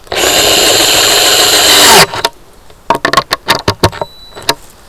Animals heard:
forest ambience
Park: Hubbard Brook Experimental Forest